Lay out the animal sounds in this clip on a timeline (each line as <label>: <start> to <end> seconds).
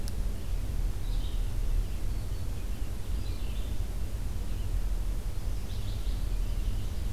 Red-eyed Vireo (Vireo olivaceus): 0.0 to 7.1 seconds
Black-throated Green Warbler (Setophaga virens): 1.9 to 2.5 seconds
Ovenbird (Seiurus aurocapilla): 6.4 to 7.1 seconds